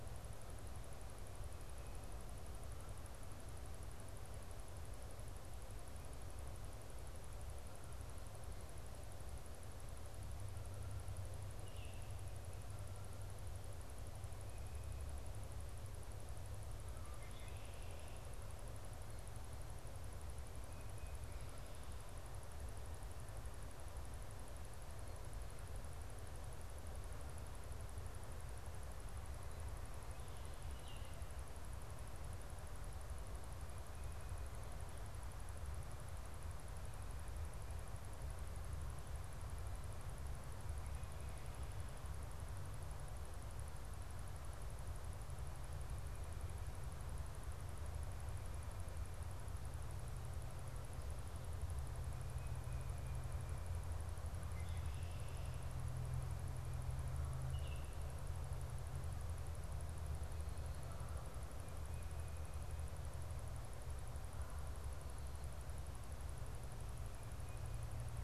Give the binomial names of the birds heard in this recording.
Agelaius phoeniceus, Icterus galbula